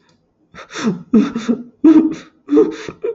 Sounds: Sigh